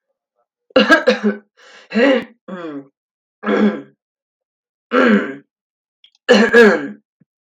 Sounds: Throat clearing